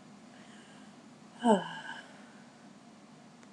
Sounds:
Sigh